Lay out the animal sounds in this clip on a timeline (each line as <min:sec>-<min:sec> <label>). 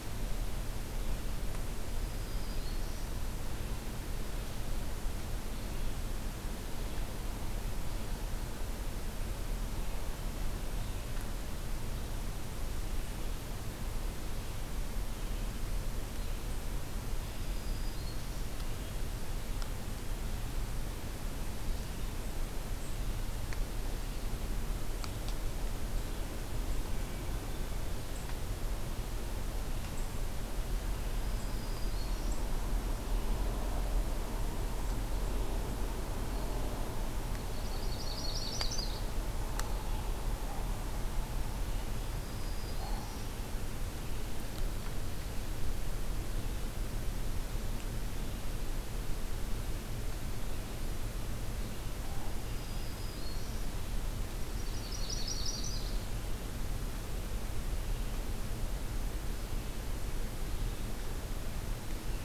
0:02.0-0:03.1 Black-throated Green Warbler (Setophaga virens)
0:17.3-0:18.5 Black-throated Green Warbler (Setophaga virens)
0:26.8-0:28.0 Hermit Thrush (Catharus guttatus)
0:31.1-0:32.4 Black-throated Green Warbler (Setophaga virens)
0:37.5-0:39.0 Yellow-rumped Warbler (Setophaga coronata)
0:42.1-0:43.3 Black-throated Green Warbler (Setophaga virens)
0:52.4-0:53.6 Black-throated Green Warbler (Setophaga virens)
0:54.3-0:56.0 Yellow-rumped Warbler (Setophaga coronata)